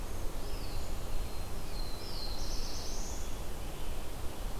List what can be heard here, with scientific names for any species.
Contopus virens, Setophaga caerulescens